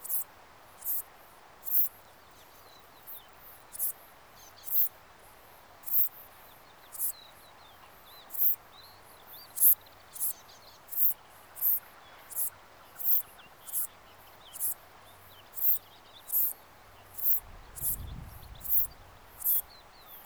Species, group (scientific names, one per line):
Eupholidoptera latens
Orthoptera